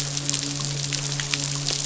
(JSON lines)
{"label": "biophony, midshipman", "recorder": "SoundTrap 500"}